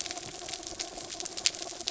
{"label": "anthrophony, mechanical", "recorder": "SoundTrap 300"}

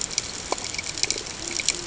{"label": "ambient", "recorder": "HydroMoth"}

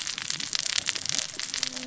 {"label": "biophony, cascading saw", "recorder": "SoundTrap 600 or HydroMoth"}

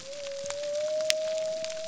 {"label": "biophony", "recorder": "SoundTrap 300"}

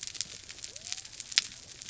{"label": "biophony", "recorder": "SoundTrap 300"}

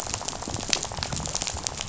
{"label": "biophony, rattle", "recorder": "SoundTrap 500"}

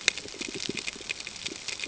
{"label": "ambient", "recorder": "HydroMoth"}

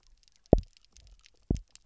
{"label": "biophony, double pulse", "recorder": "SoundTrap 300"}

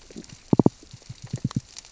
{"label": "biophony, knock", "recorder": "SoundTrap 600 or HydroMoth"}
{"label": "biophony, stridulation", "recorder": "SoundTrap 600 or HydroMoth"}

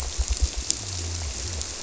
{"label": "biophony", "recorder": "SoundTrap 300"}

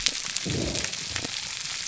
{"label": "biophony", "recorder": "SoundTrap 300"}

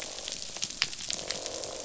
{"label": "biophony, croak", "recorder": "SoundTrap 500"}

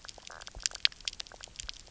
{"label": "biophony, knock croak", "recorder": "SoundTrap 300"}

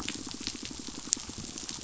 {"label": "biophony, pulse", "recorder": "SoundTrap 500"}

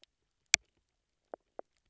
{"label": "biophony, knock croak", "recorder": "SoundTrap 300"}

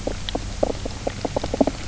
{"label": "biophony, knock croak", "recorder": "SoundTrap 300"}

